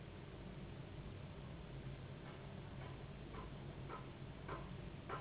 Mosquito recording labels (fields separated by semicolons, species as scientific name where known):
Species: Anopheles gambiae s.s.; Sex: female; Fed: unfed; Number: one; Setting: insect culture